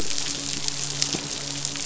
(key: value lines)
label: biophony, midshipman
recorder: SoundTrap 500